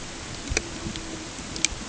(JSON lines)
{"label": "ambient", "recorder": "HydroMoth"}